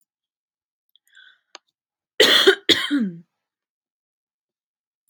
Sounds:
Cough